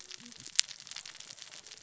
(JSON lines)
{"label": "biophony, cascading saw", "recorder": "SoundTrap 600 or HydroMoth"}